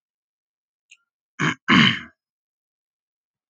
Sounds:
Throat clearing